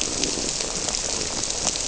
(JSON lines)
{"label": "biophony", "recorder": "SoundTrap 300"}